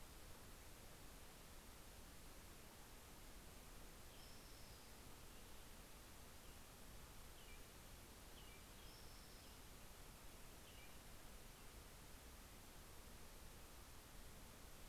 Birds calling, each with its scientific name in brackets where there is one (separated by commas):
Spotted Towhee (Pipilo maculatus)